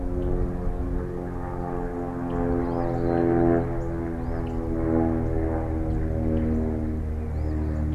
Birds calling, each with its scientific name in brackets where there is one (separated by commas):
Rusty Blackbird (Euphagus carolinus), Eastern Phoebe (Sayornis phoebe)